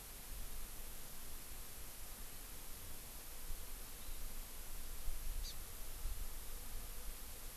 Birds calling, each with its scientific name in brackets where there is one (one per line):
Hawaii Amakihi (Chlorodrepanis virens)